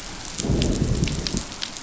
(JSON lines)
{"label": "biophony, growl", "recorder": "SoundTrap 500"}